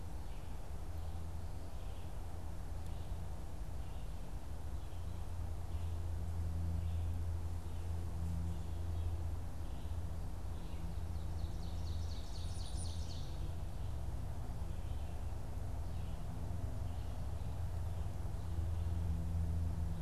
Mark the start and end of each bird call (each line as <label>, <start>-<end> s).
Ovenbird (Seiurus aurocapilla), 10.8-13.7 s
Black-capped Chickadee (Poecile atricapillus), 12.2-13.4 s